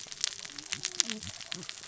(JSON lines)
{"label": "biophony, cascading saw", "recorder": "SoundTrap 600 or HydroMoth"}